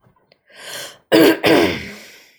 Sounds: Throat clearing